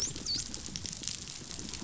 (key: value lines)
label: biophony, dolphin
recorder: SoundTrap 500